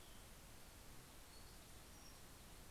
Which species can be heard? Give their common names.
Hermit Thrush